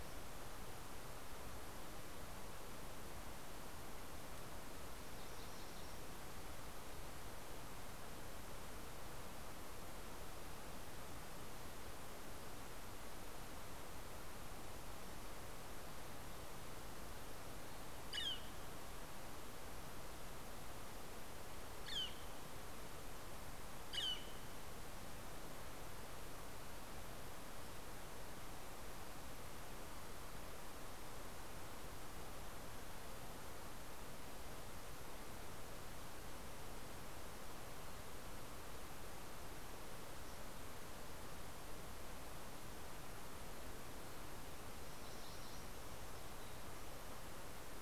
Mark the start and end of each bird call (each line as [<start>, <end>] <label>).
[4.66, 6.86] MacGillivray's Warbler (Geothlypis tolmiei)
[17.66, 25.66] Northern Flicker (Colaptes auratus)
[43.76, 46.66] MacGillivray's Warbler (Geothlypis tolmiei)